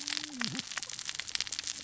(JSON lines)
{"label": "biophony, cascading saw", "recorder": "SoundTrap 600 or HydroMoth"}